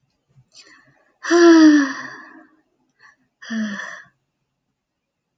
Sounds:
Sigh